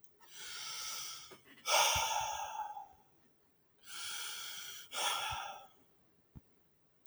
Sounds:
Sigh